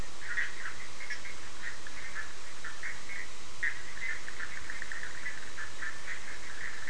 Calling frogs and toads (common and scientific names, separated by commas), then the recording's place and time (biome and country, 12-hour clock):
Bischoff's tree frog (Boana bischoffi)
Atlantic Forest, Brazil, 8:30pm